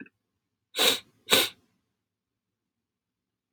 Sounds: Sniff